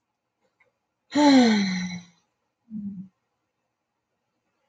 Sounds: Sigh